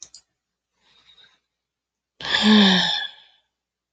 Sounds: Sigh